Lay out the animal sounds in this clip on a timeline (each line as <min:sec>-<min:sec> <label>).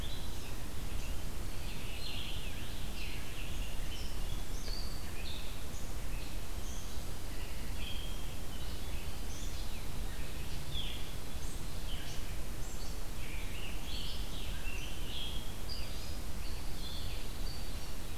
0:00.0-0:18.2 Red-eyed Vireo (Vireo olivaceus)
0:00.9-0:04.0 Scarlet Tanager (Piranga olivacea)
0:06.6-0:08.0 Pine Warbler (Setophaga pinus)
0:12.9-0:15.9 Scarlet Tanager (Piranga olivacea)
0:16.3-0:17.6 Pine Warbler (Setophaga pinus)